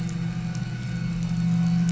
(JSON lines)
{"label": "anthrophony, boat engine", "recorder": "SoundTrap 500"}